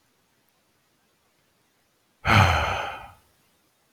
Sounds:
Sigh